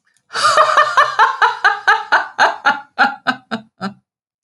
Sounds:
Laughter